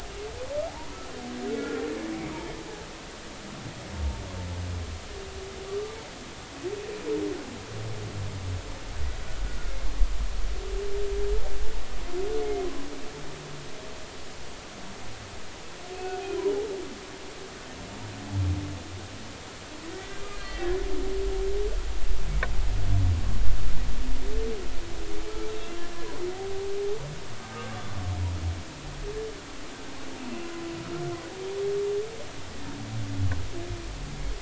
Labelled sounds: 1.5	1.8	humpback whale, 1.3 to 1.5 kHz
5.7	6.0	humpback whale, 1.1 to 1.2 kHz
12.4	12.7	humpback whale, 2.1 to 2.2 kHz
15.9	16.2	humpback whale, 2.4 to 2.6 kHz
19.9	20.7	humpback whale, 1.8 to 2.0 kHz
26.3	26.7	humpback whale, 0.80 to 0.83 kHz

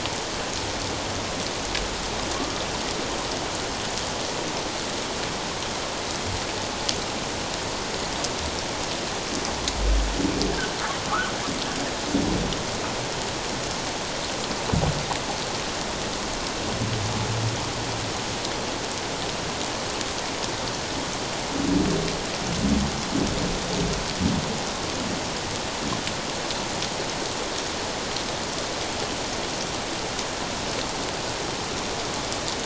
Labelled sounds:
10.5	10.8	humpback whale, 1.4 to 1.8 kHz

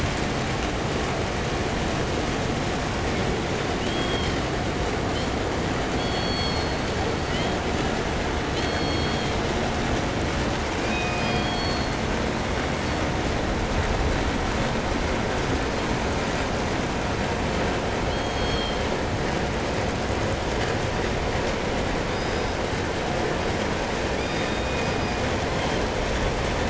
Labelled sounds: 3.6	7.6	killer whale, southern resident, call S16, 1.6 to 8.0 kHz
8.5	9.5	killer whale, southern resident, call S16, 1.9 to 6.7 kHz
10.7	13.2	killer whale, southern resident, 1.9 to 8.0 kHz
17.7	19.0	killer whale, southern resident, call S16, 2.7 to 8.0 kHz
21.9	22.9	killer whale, southern resident, call S17, 3.1 to 5.3 kHz
24.1	26.1	killer whale, southern resident, call S17, 1.8 to 8.0 kHz

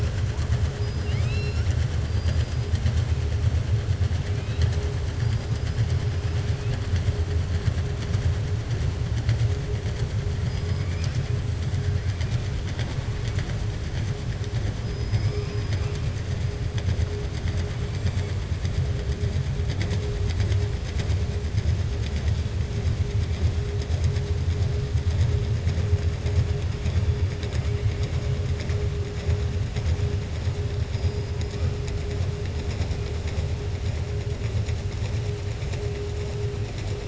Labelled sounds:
0.7	1.8	killer whale, southern resident, 1.3 to 7.3 kHz
10.8	11.1	killer whale, southern resident, 1.6 to 3.1 kHz

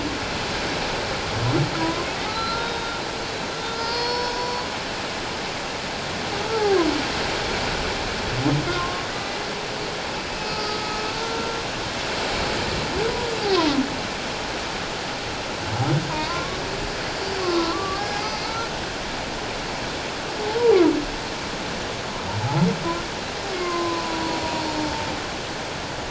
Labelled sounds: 1.8	3.0	humpback whale, 0.94 to 4.2 kHz
3.7	4.6	humpback whale, 0.88 to 5.9 kHz
6.4	6.7	humpback whale, 1.2 to 1.4 kHz
8.8	9.0	humpback whale, 1.0 to 1.2 kHz
10.3	11.6	humpback whale, 1.2 to 4.8 kHz
16.1	16.6	humpback whale, 0.88 to 1.2 kHz
17.2	18.7	humpback whale, 0.97 to 5.1 kHz
22.4	22.7	humpback whale, 0.78 to 0.97 kHz
23.5	24.9	humpback whale, 0.91 to 4.4 kHz

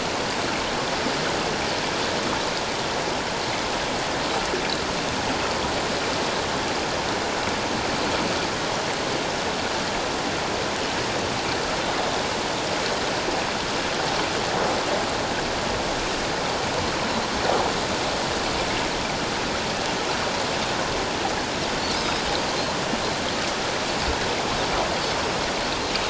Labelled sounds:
22.0	22.2	Pacific white-sided dolphin, 4.9 to 5.2 kHz

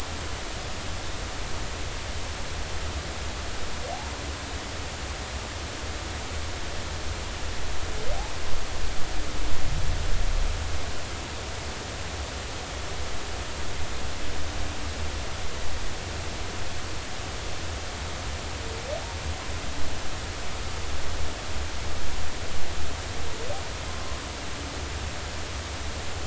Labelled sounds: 23.9	24.2	humpback whale, 0.99 to 1.2 kHz

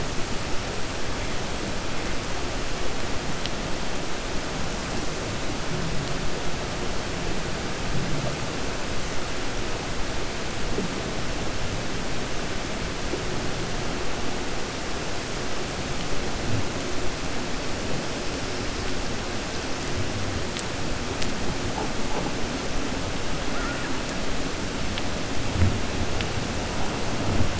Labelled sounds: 23.5	23.9	killer whale, 1.2 to 2.4 kHz

